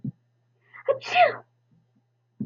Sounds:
Sneeze